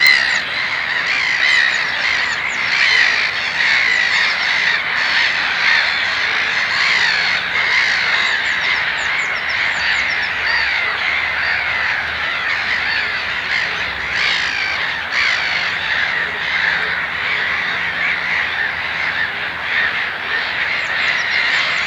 Is this in nature?
yes